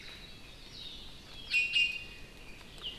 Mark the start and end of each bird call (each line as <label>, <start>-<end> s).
Iiwi (Drepanis coccinea), 1.5-2.4 s